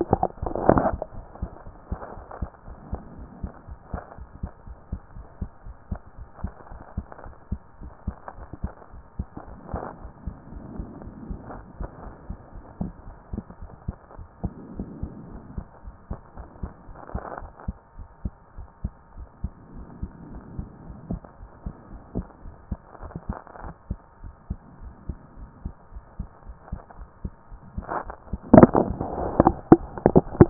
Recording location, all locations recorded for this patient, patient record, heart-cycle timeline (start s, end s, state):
pulmonary valve (PV)
aortic valve (AV)+pulmonary valve (PV)+tricuspid valve (TV)
#Age: Child
#Sex: Female
#Height: 141.0 cm
#Weight: 45.2 kg
#Pregnancy status: False
#Murmur: Absent
#Murmur locations: nan
#Most audible location: nan
#Systolic murmur timing: nan
#Systolic murmur shape: nan
#Systolic murmur grading: nan
#Systolic murmur pitch: nan
#Systolic murmur quality: nan
#Diastolic murmur timing: nan
#Diastolic murmur shape: nan
#Diastolic murmur grading: nan
#Diastolic murmur pitch: nan
#Diastolic murmur quality: nan
#Outcome: Abnormal
#Campaign: 2014 screening campaign
0.00	1.05	unannotated
1.05	1.18	diastole
1.18	1.26	S1
1.26	1.40	systole
1.40	1.50	S2
1.50	1.66	diastole
1.66	1.74	S1
1.74	1.86	systole
1.86	2.00	S2
2.00	2.16	diastole
2.16	2.24	S1
2.24	2.38	systole
2.38	2.50	S2
2.50	2.68	diastole
2.68	2.78	S1
2.78	2.90	systole
2.90	3.04	S2
3.04	3.20	diastole
3.20	3.30	S1
3.30	3.40	systole
3.40	3.50	S2
3.50	3.68	diastole
3.68	3.78	S1
3.78	3.92	systole
3.92	4.02	S2
4.02	4.20	diastole
4.20	4.28	S1
4.28	4.40	systole
4.40	4.52	S2
4.52	4.68	diastole
4.68	4.76	S1
4.76	4.88	systole
4.88	5.00	S2
5.00	5.16	diastole
5.16	5.26	S1
5.26	5.40	systole
5.40	5.50	S2
5.50	5.66	diastole
5.66	5.74	S1
5.74	5.88	systole
5.88	6.00	S2
6.00	6.18	diastole
6.18	6.26	S1
6.26	6.40	systole
6.40	6.52	S2
6.52	6.72	diastole
6.72	6.80	S1
6.80	6.96	systole
6.96	7.06	S2
7.06	7.26	diastole
7.26	7.34	S1
7.34	7.48	systole
7.48	7.60	S2
7.60	7.80	diastole
7.80	7.92	S1
7.92	8.06	systole
8.06	8.18	S2
8.18	8.38	diastole
8.38	8.48	S1
8.48	8.60	systole
8.60	8.74	S2
8.74	8.94	diastole
8.94	9.02	S1
9.02	9.16	systole
9.16	9.28	S2
9.28	9.48	diastole
9.48	9.58	S1
9.58	9.70	systole
9.70	9.82	S2
9.82	10.02	diastole
10.02	10.12	S1
10.12	10.24	systole
10.24	10.36	S2
10.36	10.52	diastole
10.52	10.64	S1
10.64	10.76	systole
10.76	10.86	S2
10.86	11.02	diastole
11.02	11.14	S1
11.14	11.28	systole
11.28	11.38	S2
11.38	11.54	diastole
11.54	11.64	S1
11.64	11.76	systole
11.76	11.88	S2
11.88	12.04	diastole
12.04	12.14	S1
12.14	12.28	systole
12.28	12.38	S2
12.38	12.56	diastole
12.56	12.64	S1
12.64	12.80	systole
12.80	12.92	S2
12.92	13.08	diastole
13.08	13.16	S1
13.16	13.32	systole
13.32	13.44	S2
13.44	13.62	diastole
13.62	13.70	S1
13.70	13.84	systole
13.84	13.98	S2
13.98	14.18	diastole
14.18	14.26	S1
14.26	14.40	systole
14.40	14.52	S2
14.52	14.72	diastole
14.72	14.88	S1
14.88	15.00	systole
15.00	15.10	S2
15.10	15.28	diastole
15.28	15.42	S1
15.42	15.56	systole
15.56	15.68	S2
15.68	15.86	diastole
15.86	15.94	S1
15.94	16.10	systole
16.10	16.20	S2
16.20	16.38	diastole
16.38	16.48	S1
16.48	16.62	systole
16.62	16.72	S2
16.72	16.90	diastole
16.90	16.96	S1
16.96	17.14	systole
17.14	17.24	S2
17.24	17.42	diastole
17.42	17.50	S1
17.50	17.64	systole
17.64	17.78	S2
17.78	17.98	diastole
17.98	18.08	S1
18.08	18.24	systole
18.24	18.36	S2
18.36	18.58	diastole
18.58	18.68	S1
18.68	18.80	systole
18.80	18.94	S2
18.94	19.16	diastole
19.16	19.28	S1
19.28	19.40	systole
19.40	19.54	S2
19.54	19.74	diastole
19.74	19.86	S1
19.86	20.00	systole
20.00	20.12	S2
20.12	20.30	diastole
20.30	20.42	S1
20.42	20.56	systole
20.56	20.68	S2
20.68	20.86	diastole
20.86	20.98	S1
20.98	21.08	systole
21.08	21.20	S2
21.20	21.42	diastole
21.42	21.50	S1
21.50	21.62	systole
21.62	21.74	S2
21.74	21.92	diastole
21.92	22.02	S1
22.02	22.14	systole
22.14	22.26	S2
22.26	22.44	diastole
22.44	22.54	S1
22.54	22.68	systole
22.68	22.82	S2
22.82	23.02	diastole
23.02	23.12	S1
23.12	23.26	systole
23.26	23.40	S2
23.40	23.62	diastole
23.62	23.74	S1
23.74	23.90	systole
23.90	24.00	S2
24.00	24.24	diastole
24.24	24.34	S1
24.34	24.46	systole
24.46	24.60	S2
24.60	24.82	diastole
24.82	24.94	S1
24.94	25.06	systole
25.06	25.20	S2
25.20	25.40	diastole
25.40	25.50	S1
25.50	25.64	systole
25.64	25.76	S2
25.76	25.94	diastole
25.94	26.04	S1
26.04	26.16	systole
26.16	26.30	S2
26.30	26.48	diastole
26.48	26.56	S1
26.56	26.68	systole
26.68	26.80	S2
26.80	27.00	diastole
27.00	27.08	S1
27.08	27.24	systole
27.24	27.34	S2
27.34	27.52	diastole
27.52	27.60	S1
27.60	27.74	systole
27.74	27.88	S2
27.88	28.06	diastole
28.06	28.16	S1
28.16	28.26	systole
28.26	28.34	S2
28.34	28.50	diastole
28.50	30.50	unannotated